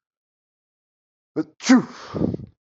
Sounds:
Sneeze